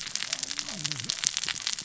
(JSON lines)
{"label": "biophony, cascading saw", "recorder": "SoundTrap 600 or HydroMoth"}